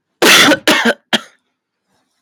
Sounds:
Cough